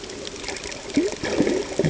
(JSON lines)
{"label": "ambient", "recorder": "HydroMoth"}